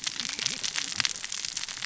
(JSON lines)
{"label": "biophony, cascading saw", "recorder": "SoundTrap 600 or HydroMoth"}